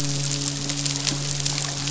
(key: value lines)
label: biophony, midshipman
recorder: SoundTrap 500